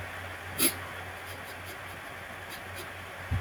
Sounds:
Sniff